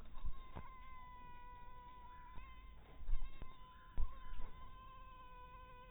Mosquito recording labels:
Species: mosquito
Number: one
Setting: cup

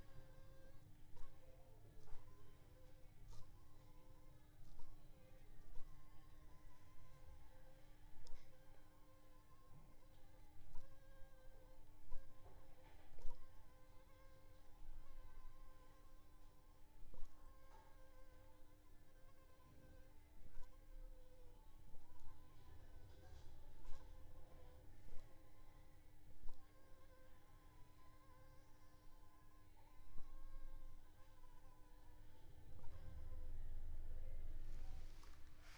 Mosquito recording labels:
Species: Anopheles funestus s.s.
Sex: female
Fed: unfed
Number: one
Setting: cup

